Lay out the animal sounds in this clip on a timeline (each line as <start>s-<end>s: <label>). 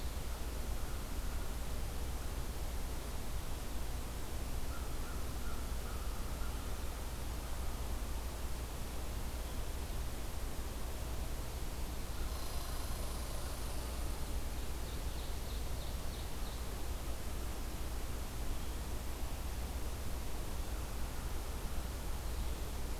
0.1s-1.8s: American Crow (Corvus brachyrhynchos)
4.6s-6.8s: American Crow (Corvus brachyrhynchos)
12.2s-14.6s: Red Squirrel (Tamiasciurus hudsonicus)
14.6s-16.8s: Ovenbird (Seiurus aurocapilla)